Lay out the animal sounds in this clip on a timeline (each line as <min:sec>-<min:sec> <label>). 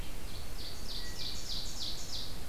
0:00.0-0:02.5 Ovenbird (Seiurus aurocapilla)